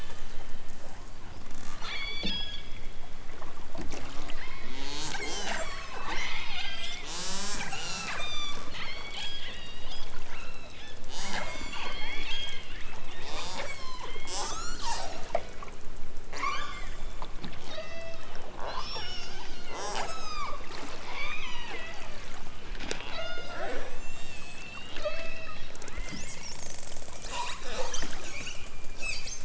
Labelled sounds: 1.8	2.6	killer whale, southern Alaska resident, 1.0 to 8.0 kHz
5.1	15.3	killer whale, southern Alaska resident, 0.18 to 8.0 kHz
16.3	17.0	killer whale, southern Alaska resident, 0.41 to 8.0 kHz
17.6	20.5	killer whale, southern Alaska resident, 0.28 to 8.0 kHz
21.0	22.5	killer whale, southern Alaska resident, 0.32 to 6.5 kHz
23.1	25.7	killer whale, southern Alaska resident, 0.23 to 8.0 kHz

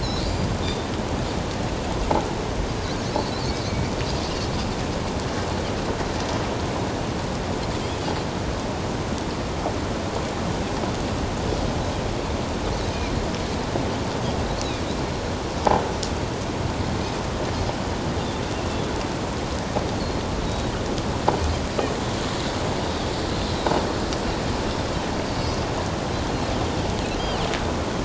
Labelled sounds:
0.0	0.9	Pacific white-sided dolphin, 3.4 to 4.9 kHz
20.4	20.7	Pacific white-sided dolphin, 3.7 to 4.0 kHz
23.3	23.6	Pacific white-sided dolphin, 3.9 to 4.2 kHz
25.4	25.7	Pacific white-sided dolphin, 4.8 to 5.1 kHz

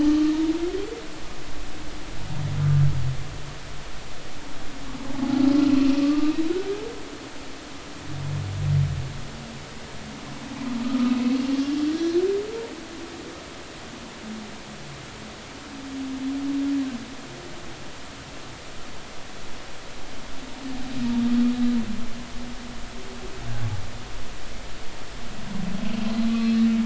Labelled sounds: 0.1	0.3	humpback whale, 1.2 to 1.4 kHz
5.7	6.4	humpback whale, 1.1 to 2.8 kHz
10.8	11.2	humpback whale, 1.2 to 1.4 kHz
26.3	26.6	humpback whale, 2.5 to 2.7 kHz

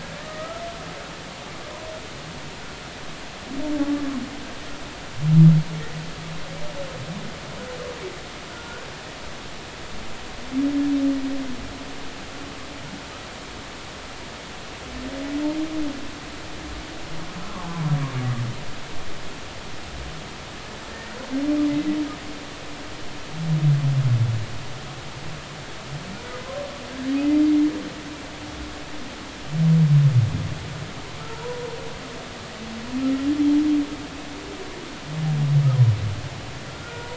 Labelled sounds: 0.2	0.6	humpback whale, 1.2 to 2.0 kHz
8.5	8.8	humpback whale, 1.3 to 1.5 kHz
20.9	21.2	humpback whale, 1.8 to 2.0 kHz
31.3	31.7	humpback whale, 0.86 to 1.0 kHz
36.7	37.1	humpback whale, 0.93 to 1.5 kHz

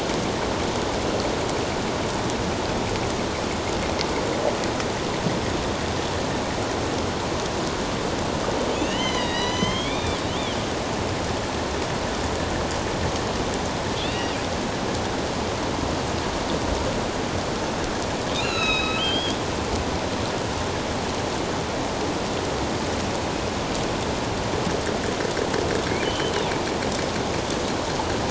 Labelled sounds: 8.7	10.6	killer whale, northern resident, A clan, AB subclan, 0.91 to 6.5 kHz
14.0	14.4	killer whale, northern resident, A clan, AB subclan, 2.5 to 3.9 kHz
18.3	19.4	killer whale, northern resident, A clan, AB subclan, 1.2 to 7.0 kHz
26.0	26.3	killer whale, northern resident, A clan, AB subclan, 2.8 to 3.2 kHz

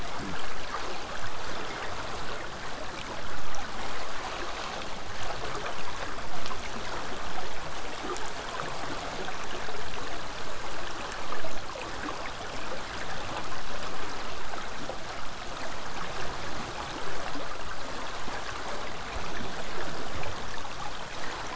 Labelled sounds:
16.2	21.2	vessel noise, 0 to 8.0 kHz

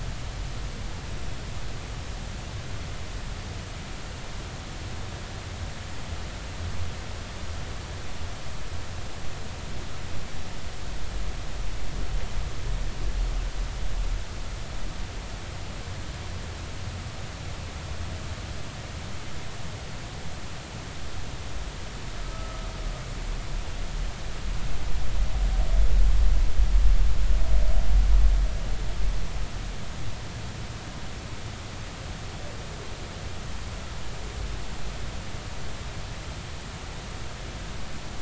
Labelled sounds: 22.3	22.6	humpback whale, 1.2 to 1.3 kHz

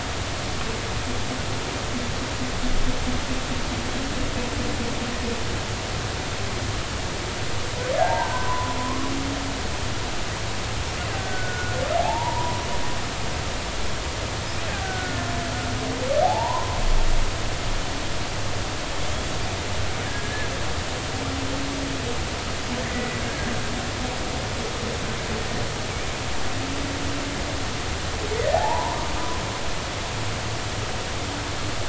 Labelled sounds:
7.9	8.5	killer whale, Bigg's (transient), 1.5 to 1.8 kHz
8.0	8.8	humpback whale, 0.80 to 1.2 kHz
9.8	10.1	humpback whale, 0.96 to 1.2 kHz
11.1	11.8	killer whale, Bigg's (transient), 1.4 to 1.7 kHz
12.0	12.6	humpback whale, 0.80 to 1.0 kHz
14.8	15.2	killer whale, Bigg's (transient), 1.4 to 1.6 kHz
16.2	16.8	humpback whale, 0.80 to 1.1 kHz
20.1	20.5	killer whale, Bigg's (transient), 1.6 to 1.8 kHz
23.3	24.2	killer whale, Bigg's (transient), 1.6 to 2.0 kHz
28.3	28.6	killer whale, Bigg's (transient), 1.7 to 2.2 kHz
28.5	29.0	humpback whale, 0.80 to 1.1 kHz

